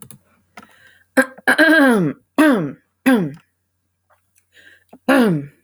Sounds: Throat clearing